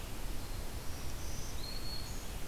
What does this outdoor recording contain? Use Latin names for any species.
Setophaga virens